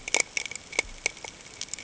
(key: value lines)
label: ambient
recorder: HydroMoth